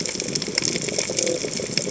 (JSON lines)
{"label": "biophony", "recorder": "HydroMoth"}